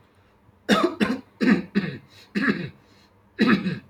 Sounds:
Throat clearing